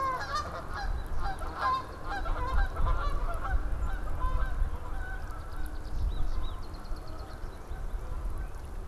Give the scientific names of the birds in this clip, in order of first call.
Branta canadensis, Spinus tristis